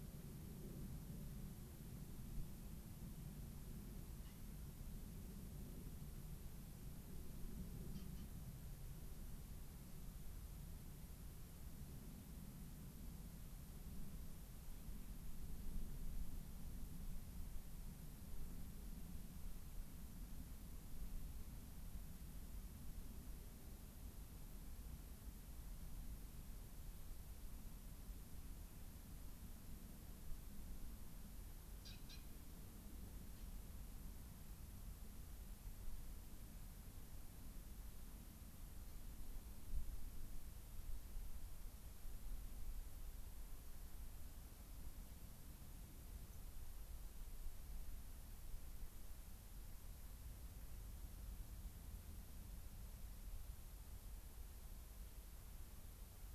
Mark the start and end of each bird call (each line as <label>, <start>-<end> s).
Dark-eyed Junco (Junco hyemalis), 46.3-46.7 s